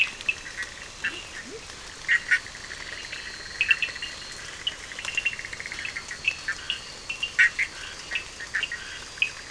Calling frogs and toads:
Bischoff's tree frog (Boana bischoffi), two-colored oval frog (Elachistocleis bicolor), Cochran's lime tree frog (Sphaenorhynchus surdus), Leptodactylus latrans, Scinax perereca
10:00pm

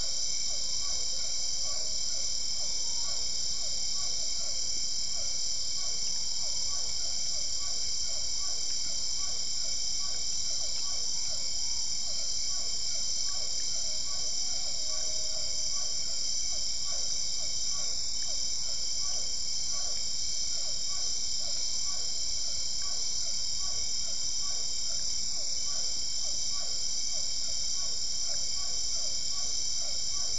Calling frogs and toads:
Physalaemus cuvieri
8:00pm

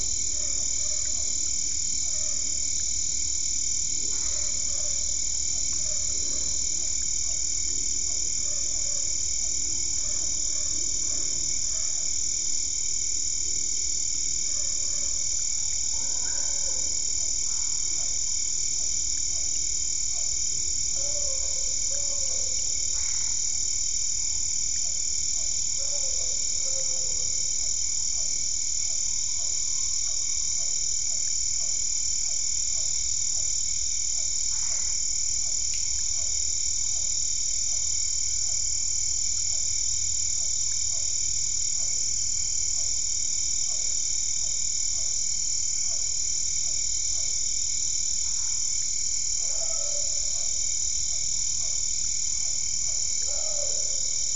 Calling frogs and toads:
Physalaemus cuvieri, Boana albopunctata
7:45pm

